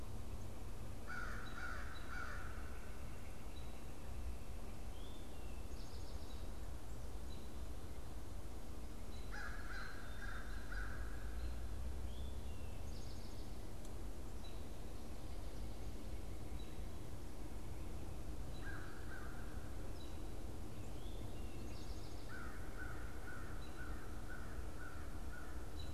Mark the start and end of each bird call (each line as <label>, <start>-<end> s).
American Crow (Corvus brachyrhynchos), 0.9-2.6 s
American Robin (Turdus migratorius), 3.3-25.9 s
Eastern Towhee (Pipilo erythrophthalmus), 4.6-6.7 s
American Crow (Corvus brachyrhynchos), 9.1-11.5 s
American Crow (Corvus brachyrhynchos), 18.5-25.9 s